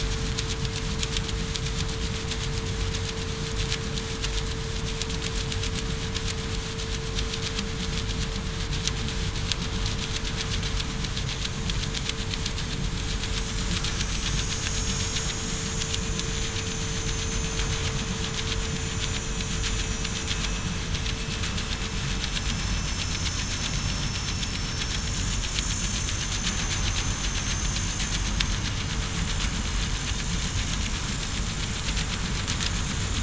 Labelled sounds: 11.5	11.8	vessel noise, 6.7 to 6.8 kHz
14.0	15.3	vessel noise, 5.9 to 7.4 kHz
16.2	17.7	vessel noise, 6.2 to 6.4 kHz
18.0	19.5	vessel noise, 7.0 to 7.1 kHz
20.3	20.7	vessel noise, 7.1 to 7.2 kHz
22.5	23.0	vessel noise, 5.3 to 5.4 kHz
23.7	24.2	vessel noise, 5.37 to 5.44 kHz
24.4	24.8	vessel noise, 5.4 to 5.5 kHz
25.6	26.0	vessel noise, 5.5 to 5.6 kHz

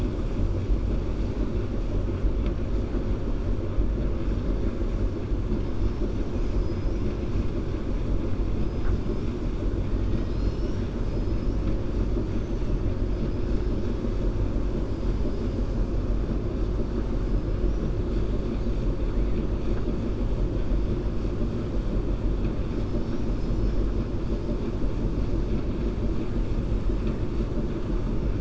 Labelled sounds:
6.2	7.1	killer whale, 4.9 to 7.6 kHz
11.0	11.5	killer whale, 4.5 to 5.8 kHz

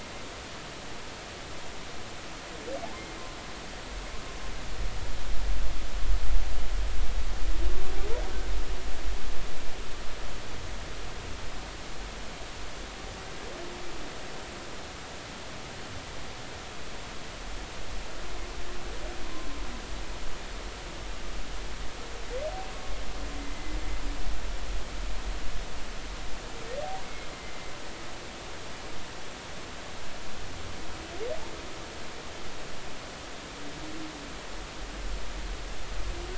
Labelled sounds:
23.4	23.8	humpback whale, 2.0 to 2.1 kHz
27.0	27.7	humpback whale, 2.0 to 2.2 kHz

